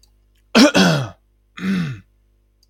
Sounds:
Throat clearing